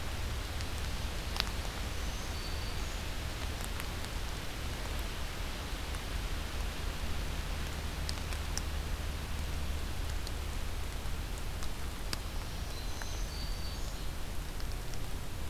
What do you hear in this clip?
Black-throated Green Warbler